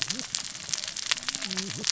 {"label": "biophony, cascading saw", "recorder": "SoundTrap 600 or HydroMoth"}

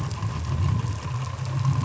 {"label": "anthrophony, boat engine", "recorder": "SoundTrap 500"}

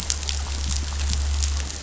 {"label": "anthrophony, boat engine", "recorder": "SoundTrap 500"}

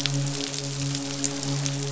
{"label": "biophony, midshipman", "recorder": "SoundTrap 500"}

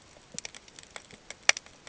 {"label": "ambient", "recorder": "HydroMoth"}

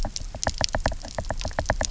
{"label": "biophony, knock", "recorder": "SoundTrap 300"}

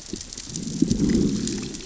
{"label": "biophony, growl", "recorder": "SoundTrap 600 or HydroMoth"}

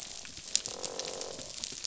{"label": "biophony, croak", "recorder": "SoundTrap 500"}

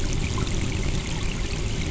{"label": "anthrophony, boat engine", "recorder": "SoundTrap 300"}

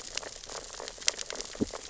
{"label": "biophony, sea urchins (Echinidae)", "recorder": "SoundTrap 600 or HydroMoth"}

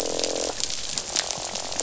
{"label": "biophony, croak", "recorder": "SoundTrap 500"}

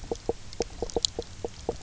{"label": "biophony, knock croak", "recorder": "SoundTrap 300"}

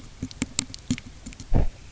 {"label": "biophony, knock", "recorder": "SoundTrap 300"}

